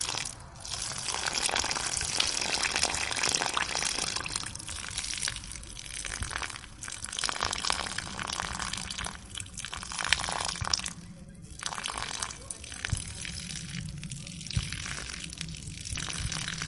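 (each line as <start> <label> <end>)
0.0 Water trickles and splashes as it drips onto the ground. 16.7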